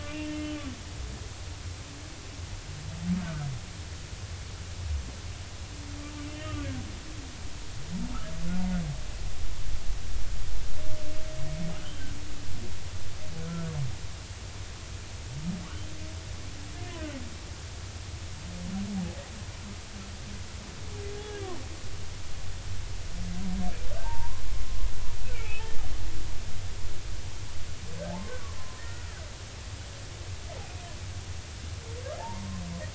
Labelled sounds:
0.1	0.5	humpback whale, 2.7 to 2.8 kHz
6.3	6.7	humpback whale, 2.5 to 3.2 kHz
11.8	12.1	humpback whale, 2.9 to 3.3 kHz
13.5	13.7	humpback whale, 1.2 to 1.4 kHz
24.0	25.7	humpback whale, 0.83 to 2.7 kHz
28.8	29.2	humpback whale, 1.3 to 2.0 kHz
32.2	32.5	humpback whale, 0.80 to 1.1 kHz

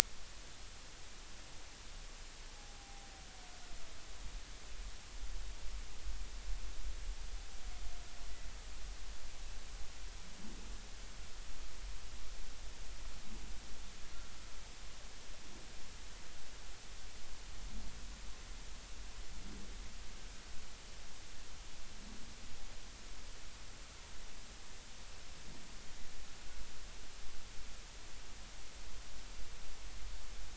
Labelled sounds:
2.8	3.1	humpback whale, 0.80 to 0.93 kHz

